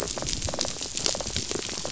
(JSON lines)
{"label": "biophony, rattle response", "recorder": "SoundTrap 500"}